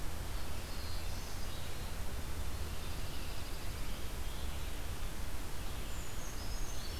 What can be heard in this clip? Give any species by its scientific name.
Vireo olivaceus, Setophaga caerulescens, Junco hyemalis, Certhia americana